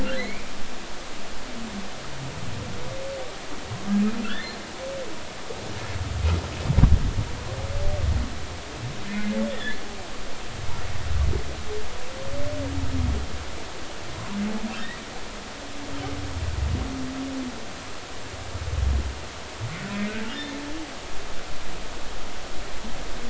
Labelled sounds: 0.2	0.5	humpback whale, 1.9 to 2.5 kHz
4.2	4.6	humpback whale, 1.3 to 1.9 kHz
9.1	9.8	humpback whale, 1.6 to 2.2 kHz

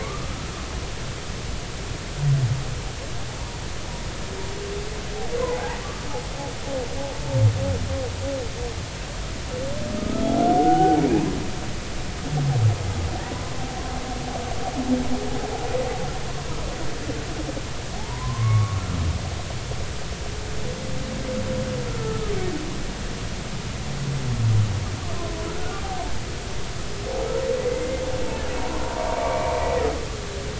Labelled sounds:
0.0	0.3	humpback whale, 1.1 to 1.3 kHz
5.4	6.1	humpback whale, 0.80 to 1.3 kHz
10.0	11.0	humpback whale, 0.80 to 1.5 kHz
13.2	13.5	humpback whale, 0.90 to 1.1 kHz
18.0	18.8	humpback whale, 0.80 to 1.2 kHz
21.9	22.3	humpback whale, 1.2 to 1.5 kHz
25.5	25.8	humpback whale, 1.3 to 1.5 kHz
28.6	29.5	humpback whale, 0.86 to 2.4 kHz

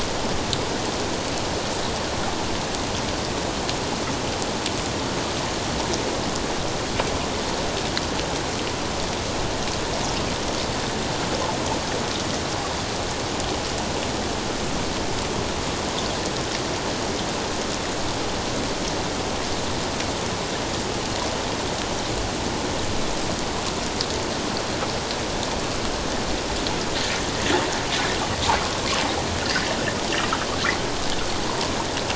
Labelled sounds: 31.5	31.7	water noise, 0.88 to 1.1 kHz

